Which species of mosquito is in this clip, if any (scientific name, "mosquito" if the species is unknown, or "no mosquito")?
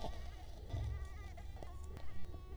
Culex quinquefasciatus